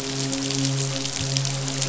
{"label": "biophony, midshipman", "recorder": "SoundTrap 500"}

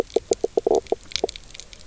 {"label": "biophony, knock croak", "recorder": "SoundTrap 300"}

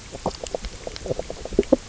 {"label": "biophony, knock croak", "recorder": "SoundTrap 300"}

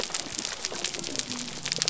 {"label": "biophony", "recorder": "SoundTrap 300"}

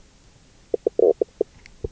{"label": "biophony, knock croak", "recorder": "SoundTrap 300"}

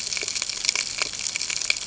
{"label": "ambient", "recorder": "HydroMoth"}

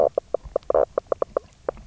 {"label": "biophony, knock croak", "recorder": "SoundTrap 300"}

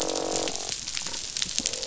{"label": "biophony, croak", "recorder": "SoundTrap 500"}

